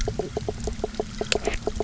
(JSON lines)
{"label": "biophony, knock croak", "recorder": "SoundTrap 300"}